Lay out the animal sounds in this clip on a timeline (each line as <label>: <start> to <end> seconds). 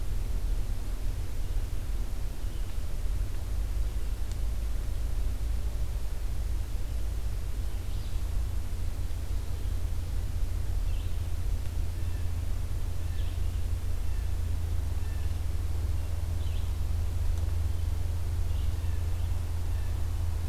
Alder Flycatcher (Empidonax alnorum): 7.7 to 8.3 seconds
Red-eyed Vireo (Vireo olivaceus): 10.7 to 20.5 seconds
Blue Jay (Cyanocitta cristata): 11.6 to 15.4 seconds
Blue Jay (Cyanocitta cristata): 18.8 to 20.1 seconds